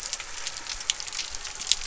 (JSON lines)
{"label": "anthrophony, boat engine", "recorder": "SoundTrap 300"}